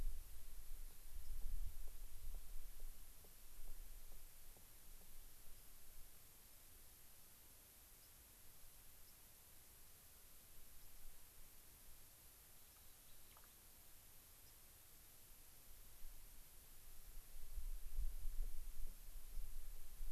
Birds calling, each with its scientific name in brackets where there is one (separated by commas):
White-crowned Sparrow (Zonotrichia leucophrys), Rock Wren (Salpinctes obsoletus)